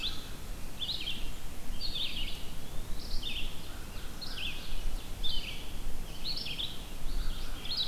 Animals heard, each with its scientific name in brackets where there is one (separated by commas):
Eastern Wood-Pewee (Contopus virens), Red-eyed Vireo (Vireo olivaceus), American Crow (Corvus brachyrhynchos)